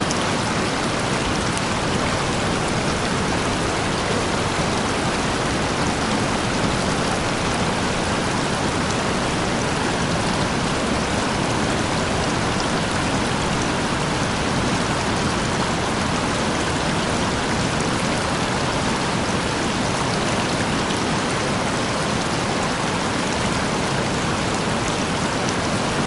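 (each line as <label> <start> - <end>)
Waves crashing quietly on a beach. 0.0 - 26.1
A stream flowing loudly nearby. 0.0 - 26.1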